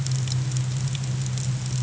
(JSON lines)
{"label": "anthrophony, boat engine", "recorder": "HydroMoth"}